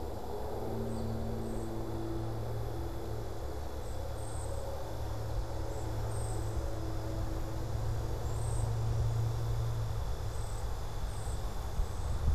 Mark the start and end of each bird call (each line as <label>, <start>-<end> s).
American Goldfinch (Spinus tristis), 0.0-1.4 s
Cedar Waxwing (Bombycilla cedrorum), 0.0-12.3 s